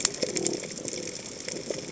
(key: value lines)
label: biophony
recorder: HydroMoth